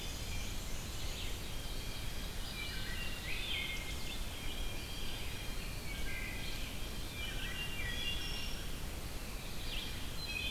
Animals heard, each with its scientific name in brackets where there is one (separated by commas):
Eastern Wood-Pewee (Contopus virens), Red-eyed Vireo (Vireo olivaceus), Pine Warbler (Setophaga pinus), Black-and-white Warbler (Mniotilta varia), Blue Jay (Cyanocitta cristata), Ovenbird (Seiurus aurocapilla), Wood Thrush (Hylocichla mustelina)